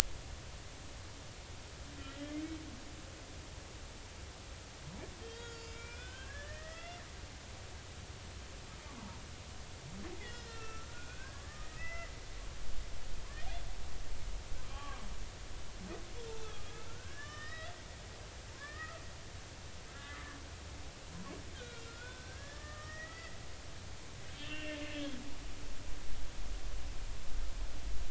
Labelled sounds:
5.2	7.0	humpback whale, 1.3 to 7.1 kHz
10.2	12.1	humpback whale, 1.3 to 5.3 kHz
14.7	15.0	humpback whale, 0.80 to 3.2 kHz
16.4	17.7	humpback whale, 1.1 to 5.2 kHz
18.5	19.0	humpback whale, 1.0 to 2.0 kHz
19.9	20.4	humpback whale, 1.1 to 2.1 kHz
21.5	23.4	humpback whale, 1.2 to 5.8 kHz
24.4	25.1	humpback whale, 1.6 to 3.1 kHz

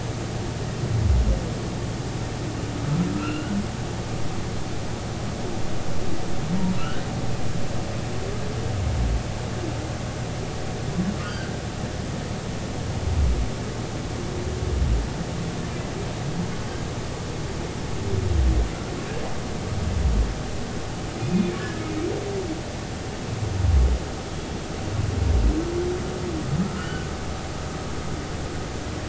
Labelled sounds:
3.1	3.5	humpback whale, 1.2 to 3.0 kHz
6.8	7.1	humpback whale, 1.3 to 1.6 kHz
11.2	11.6	humpback whale, 1.4 to 1.7 kHz
21.2	21.8	humpback whale, 1.6 to 2.5 kHz
26.8	27.1	humpback whale, 1.3 to 3.1 kHz

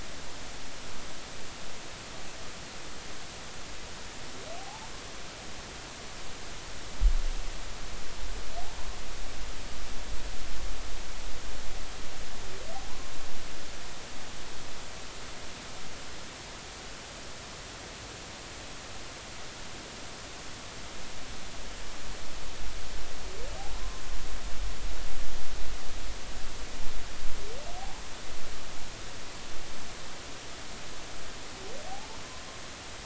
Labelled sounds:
4.6	4.9	humpback whale, 0.80 to 1.0 kHz
23.7	24.0	humpback whale, 0.99 to 1.1 kHz
27.8	28.0	humpback whale, 0.80 to 1.1 kHz

